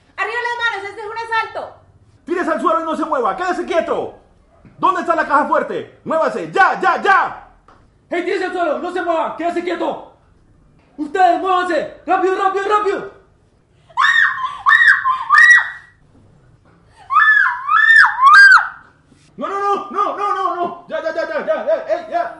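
A woman is speaking rapidly. 0.1 - 2.0
A man is speaking quickly. 2.1 - 4.4
A man is speaking quickly and loudly. 4.6 - 7.6
A man is speaking quickly. 8.0 - 10.4
A man is speaking quickly and loudly. 10.8 - 13.3
A woman screams piercingly and repeatedly. 13.7 - 16.0
A woman screams loudly and repeatedly. 16.7 - 19.0
A man is shouting repeatedly and erratically. 19.3 - 22.4

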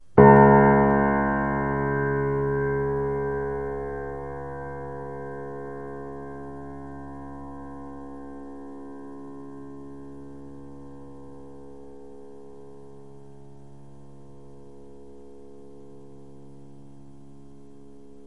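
A single loud piano note that gradually becomes softer until it fades into silence. 0.1 - 18.3

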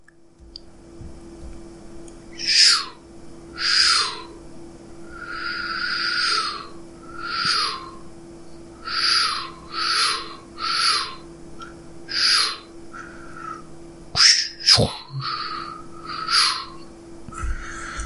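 Loud whooshing sounds made with the mouth repeated. 2.2 - 4.4
Repeated airy whooshing sounds made with the mouth. 4.9 - 8.0
Quickly repeated whooshing sounds made with the mouth. 8.8 - 11.3
Whooshing sounds are made with the mouth. 12.0 - 12.6
Loud whooshing sounds made with the mouth repeated. 14.1 - 17.1

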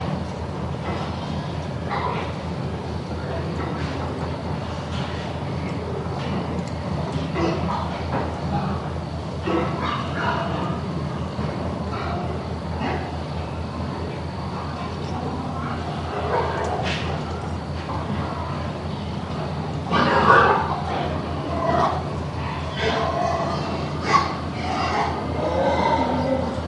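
A machine hums steadily and quietly. 0.0 - 26.7
A dog barks in the distance. 16.2 - 17.4
A pig grunts nearby. 19.8 - 26.7

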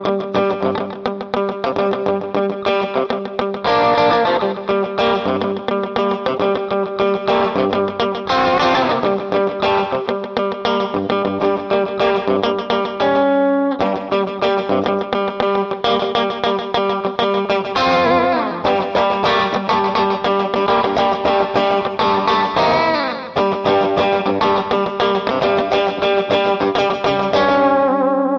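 A guitar plays a rhythmic, pulsating melody indoors. 0.0 - 28.4

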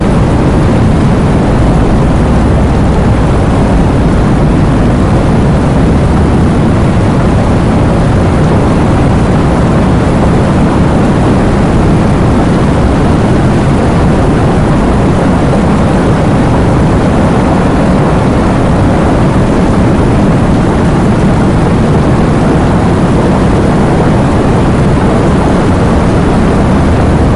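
Thunderous low-frequency rumble continuing. 0.0 - 27.4
Steady rainfall. 0.0 - 27.4

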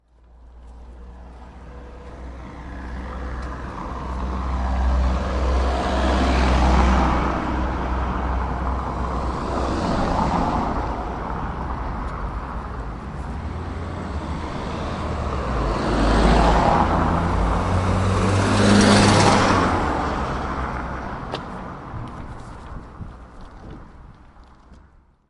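A car engine starts in the distance and then passes by. 1.7 - 9.2
A car engine is running as the car passes by. 9.3 - 11.2
Two cars pass by, one from a distance followed by a louder car behind it. 12.6 - 21.5

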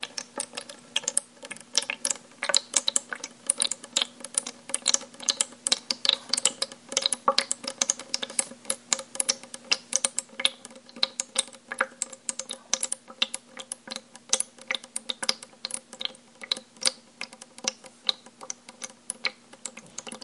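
Liquid is filtering and splashing repeatedly. 0.0 - 20.2

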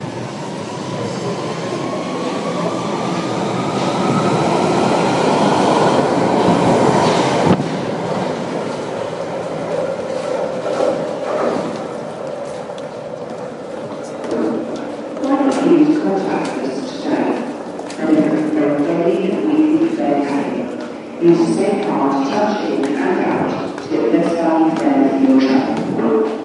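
A train accelerates continuously nearby outdoors. 0.0 - 7.6
A train is going over train tracks in the distance. 10.6 - 11.8
People walking outdoors, muffled and low in the background. 12.6 - 26.4
Train announcement is made over a synthetic, muffled speaker with gaps in the background. 15.2 - 26.4

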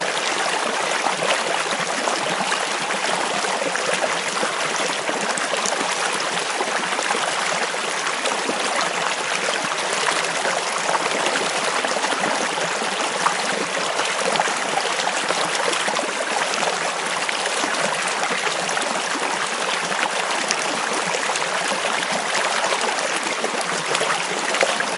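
Water is falling loudly into a stream nearby. 0.0 - 25.0

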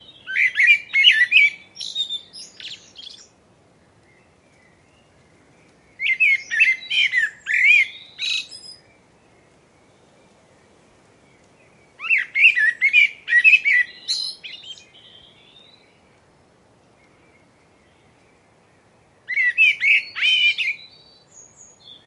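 A bird chirps loudly with a high pitch nearby. 0.0 - 3.4
Birds chirp quietly in the distance. 3.4 - 5.8
A bird chirps loudly with a high pitch nearby. 5.8 - 9.2
Birds chirp quietly in the distance. 9.2 - 11.9
A bird chirps loudly with a high pitch nearby. 11.8 - 15.0
A bird chirps and slowly fades away. 15.0 - 16.1
Birds chirp quietly in the distance. 16.1 - 19.3
A bird chirps loudly with a high pitch nearby. 19.2 - 21.0
A bird chirps and slowly fades away. 20.9 - 22.1

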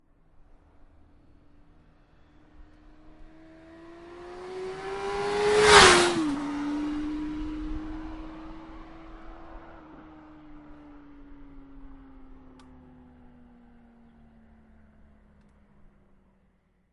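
Vehicle with a running motor approaches with increasing sound, passes by quickly with a loud noise, and then moves away with decreasing sound. 0.0 - 16.9

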